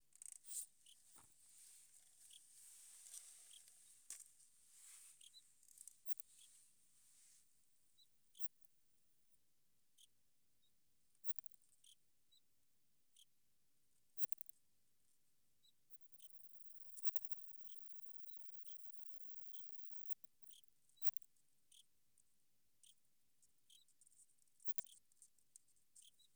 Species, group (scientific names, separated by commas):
Odontura maroccana, Orthoptera